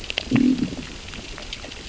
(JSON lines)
{"label": "biophony, growl", "recorder": "SoundTrap 600 or HydroMoth"}